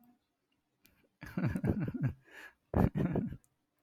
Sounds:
Laughter